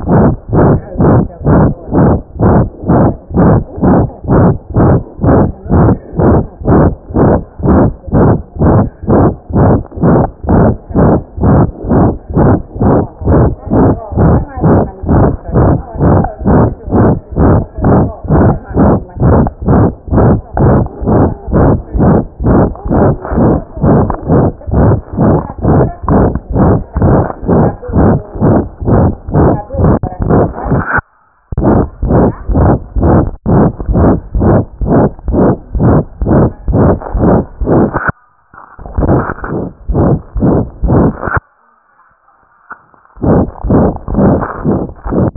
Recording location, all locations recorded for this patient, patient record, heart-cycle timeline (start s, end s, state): pulmonary valve (PV)
aortic valve (AV)+pulmonary valve (PV)+tricuspid valve (TV)+mitral valve (MV)
#Age: Child
#Sex: Female
#Height: 84.0 cm
#Weight: 10.8 kg
#Pregnancy status: False
#Murmur: Present
#Murmur locations: aortic valve (AV)+mitral valve (MV)+pulmonary valve (PV)+tricuspid valve (TV)
#Most audible location: pulmonary valve (PV)
#Systolic murmur timing: Holosystolic
#Systolic murmur shape: Plateau
#Systolic murmur grading: III/VI or higher
#Systolic murmur pitch: High
#Systolic murmur quality: Harsh
#Diastolic murmur timing: nan
#Diastolic murmur shape: nan
#Diastolic murmur grading: nan
#Diastolic murmur pitch: nan
#Diastolic murmur quality: nan
#Outcome: Abnormal
#Campaign: 2015 screening campaign
0.00	0.08	S1
0.08	0.29	systole
0.29	0.37	S2
0.37	0.46	diastole
0.46	0.54	S1
0.54	0.74	systole
0.74	0.82	S2
0.82	0.94	diastole
0.94	1.02	S1
1.02	1.21	systole
1.21	1.30	S2
1.30	1.38	diastole
1.38	1.47	S1
1.47	1.67	systole
1.67	1.75	S2
1.75	1.87	diastole
1.87	1.93	S1
1.93	2.16	systole
2.16	2.22	S2
2.22	2.33	diastole
2.33	2.41	S1
2.41	2.63	systole
2.63	2.70	S2
2.70	2.82	diastole
2.82	2.88	S1
2.88	3.11	systole
3.11	3.17	S2
3.17	3.29	diastole
3.29	3.35	S1
3.35	3.59	systole
3.59	3.65	S2
3.65	3.76	diastole
3.76	3.82	S1
3.82	4.04	systole
4.04	4.10	S2
4.10	4.22	diastole
4.22	4.30	S1
4.30	4.53	systole
4.53	4.58	S2
4.58	4.68	diastole
4.68	4.75	S1
4.75	4.98	systole
4.98	5.05	S2
5.05	5.16	diastole
5.16	5.22	S1
5.22	5.47	systole
5.47	5.52	S2
5.52	5.63	diastole
5.63	5.70	S1
5.70	5.93	systole
5.93	5.99	S2
5.99	6.12	diastole
6.12	6.17	S1
6.17	6.42	systole
6.42	6.47	S2
6.47	6.59	diastole
6.59	6.65	S1
6.65	6.89	systole
6.89	6.95	S2
6.95	7.08	diastole
7.08	7.15	S1
7.15	7.39	systole
7.39	7.45	S2
7.45	7.57	diastole
7.57	7.65	S1
7.65	7.87	systole
7.87	7.94	S2
7.94	8.06	diastole
8.06	8.13	S1
8.13	8.38	systole
8.38	8.43	S2
8.43	8.54	diastole
8.54	8.61	S1
8.61	8.84	systole
8.84	8.90	S2
8.90	9.01	diastole
9.01	9.09	S1
9.09	9.28	systole
9.28	9.37	S2
9.37	9.47	diastole
9.47	9.55	S1
9.55	9.78	systole
9.78	9.84	S2
9.84	9.95	diastole
9.95	10.02	S1
10.02	10.24	systole
10.24	10.31	S2
10.31	10.41	diastole
10.41	10.49	S1
10.49	10.70	systole
10.70	10.78	S2